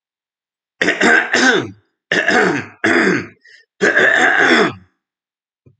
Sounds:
Throat clearing